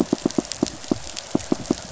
{"label": "biophony, pulse", "recorder": "SoundTrap 500"}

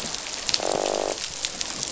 {"label": "biophony, croak", "recorder": "SoundTrap 500"}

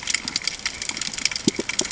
{"label": "ambient", "recorder": "HydroMoth"}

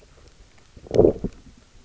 {"label": "biophony, low growl", "recorder": "SoundTrap 300"}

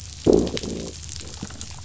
{"label": "biophony, growl", "recorder": "SoundTrap 500"}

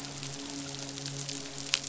{"label": "biophony, midshipman", "recorder": "SoundTrap 500"}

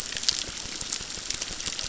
{"label": "biophony, crackle", "recorder": "SoundTrap 600"}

